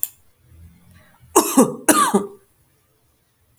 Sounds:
Cough